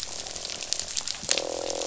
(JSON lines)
{"label": "biophony, croak", "recorder": "SoundTrap 500"}